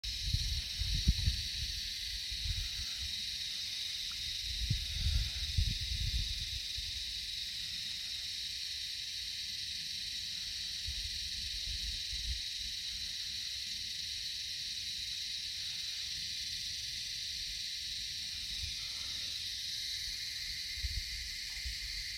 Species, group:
Psaltoda harrisii
Cicadidae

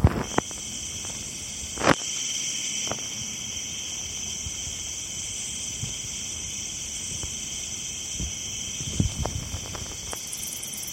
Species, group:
Orchelimum silvaticum
Orthoptera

